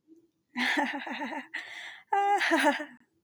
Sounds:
Laughter